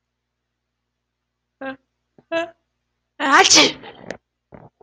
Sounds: Sneeze